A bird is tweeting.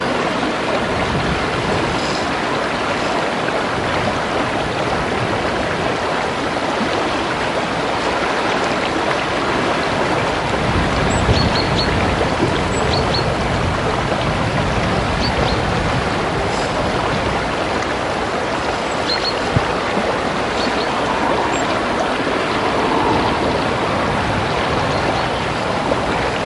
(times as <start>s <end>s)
11.2s 13.1s, 20.5s 22.6s